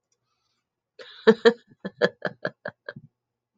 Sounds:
Laughter